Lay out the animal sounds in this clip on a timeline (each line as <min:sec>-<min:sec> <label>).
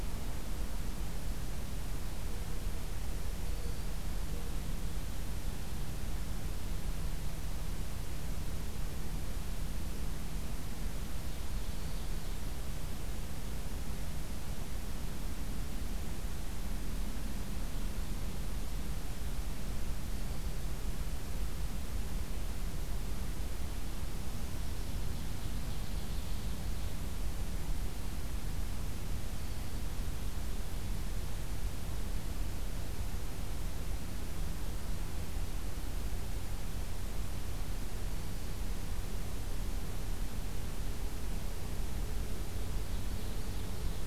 0:03.0-0:04.0 Black-throated Green Warbler (Setophaga virens)
0:03.5-0:04.8 Mourning Dove (Zenaida macroura)
0:11.4-0:12.4 Ovenbird (Seiurus aurocapilla)
0:24.9-0:26.9 Ovenbird (Seiurus aurocapilla)
0:29.4-0:31.3 Ovenbird (Seiurus aurocapilla)
0:37.9-0:38.6 Black-throated Green Warbler (Setophaga virens)
0:42.5-0:44.1 Ovenbird (Seiurus aurocapilla)